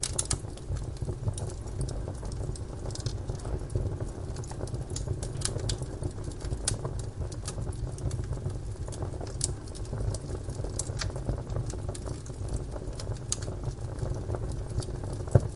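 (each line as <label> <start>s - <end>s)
Wood burns with intense, repeating crackling sounds. 0.0s - 15.6s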